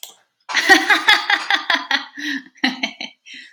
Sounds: Laughter